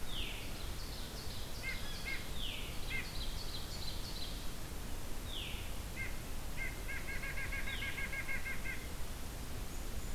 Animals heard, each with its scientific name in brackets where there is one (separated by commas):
White-breasted Nuthatch (Sitta carolinensis), Ovenbird (Seiurus aurocapilla), Veery (Catharus fuscescens)